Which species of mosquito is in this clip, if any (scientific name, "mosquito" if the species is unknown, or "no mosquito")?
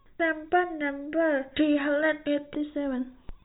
no mosquito